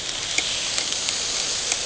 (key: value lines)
label: anthrophony, boat engine
recorder: HydroMoth